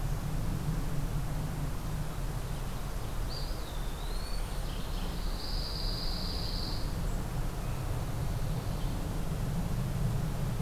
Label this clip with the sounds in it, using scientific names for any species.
Contopus virens, Regulus satrapa, Geothlypis philadelphia, Setophaga pinus